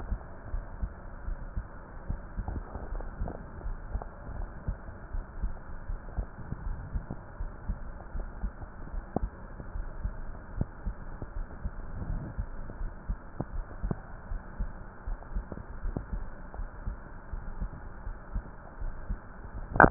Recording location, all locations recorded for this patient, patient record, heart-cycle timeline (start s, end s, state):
aortic valve (AV)
aortic valve (AV)+pulmonary valve (PV)+tricuspid valve (TV)+mitral valve (MV)
#Age: Adolescent
#Sex: Male
#Height: 174.0 cm
#Weight: 108.6 kg
#Pregnancy status: False
#Murmur: Present
#Murmur locations: mitral valve (MV)+pulmonary valve (PV)+tricuspid valve (TV)
#Most audible location: tricuspid valve (TV)
#Systolic murmur timing: Holosystolic
#Systolic murmur shape: Plateau
#Systolic murmur grading: I/VI
#Systolic murmur pitch: Low
#Systolic murmur quality: Blowing
#Diastolic murmur timing: nan
#Diastolic murmur shape: nan
#Diastolic murmur grading: nan
#Diastolic murmur pitch: nan
#Diastolic murmur quality: nan
#Outcome: Abnormal
#Campaign: 2015 screening campaign
0.00	0.18	unannotated
0.18	0.50	diastole
0.50	0.64	S1
0.64	0.80	systole
0.80	0.90	S2
0.90	1.24	diastole
1.24	1.38	S1
1.38	1.54	systole
1.54	1.66	S2
1.66	2.06	diastole
2.06	2.20	S1
2.20	2.36	systole
2.36	2.46	S2
2.46	2.90	diastole
2.90	3.06	S1
3.06	3.18	systole
3.18	3.30	S2
3.30	3.62	diastole
3.62	3.78	S1
3.78	3.88	systole
3.88	4.02	S2
4.02	4.36	diastole
4.36	4.50	S1
4.50	4.66	systole
4.66	4.76	S2
4.76	5.12	diastole
5.12	5.26	S1
5.26	5.38	systole
5.38	5.52	S2
5.52	5.90	diastole
5.90	6.00	S1
6.00	6.16	systole
6.16	6.26	S2
6.26	6.64	diastole
6.64	6.78	S1
6.78	6.92	systole
6.92	7.04	S2
7.04	7.38	diastole
7.38	7.52	S1
7.52	7.68	systole
7.68	7.80	S2
7.80	8.16	diastole
8.16	8.30	S1
8.30	8.42	systole
8.42	8.52	S2
8.52	8.92	diastole
8.92	9.06	S1
9.06	9.20	systole
9.20	9.32	S2
9.32	9.74	diastole
9.74	9.88	S1
9.88	10.02	systole
10.02	10.16	S2
10.16	10.54	diastole
10.54	10.68	S1
10.68	10.84	systole
10.84	10.96	S2
10.96	11.32	diastole
11.32	11.46	S1
11.46	11.64	systole
11.64	11.74	S2
11.74	12.08	diastole
12.08	12.22	S1
12.22	12.34	systole
12.34	12.46	S2
12.46	12.80	diastole
12.80	12.94	S1
12.94	13.08	systole
13.08	13.18	S2
13.18	13.54	diastole
13.54	13.66	S1
13.66	13.82	systole
13.82	13.98	S2
13.98	14.30	diastole
14.30	14.44	S1
14.44	14.60	systole
14.60	14.72	S2
14.72	15.06	diastole
15.06	15.18	S1
15.18	15.34	systole
15.34	15.46	S2
15.46	15.80	diastole
15.80	15.94	S1
15.94	16.08	systole
16.08	16.20	S2
16.20	16.58	diastole
16.58	16.70	S1
16.70	16.84	systole
16.84	16.98	S2
16.98	17.32	diastole
17.32	17.46	S1
17.46	17.60	systole
17.60	17.72	S2
17.72	18.06	diastole
18.06	18.20	S1
18.20	18.34	systole
18.34	18.44	S2
18.44	18.80	diastole
18.80	18.94	S1
18.94	19.06	systole
19.06	19.20	S2
19.20	19.54	diastole
19.54	19.90	unannotated